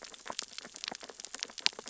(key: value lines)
label: biophony, sea urchins (Echinidae)
recorder: SoundTrap 600 or HydroMoth